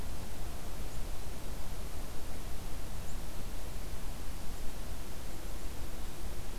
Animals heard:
forest ambience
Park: Acadia National Park